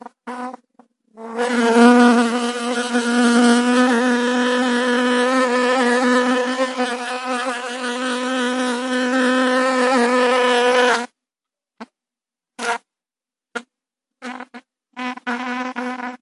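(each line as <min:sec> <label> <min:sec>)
0:00.0 A bee buzzing rapidly as it flies past with fast, vibrating wings. 0:16.2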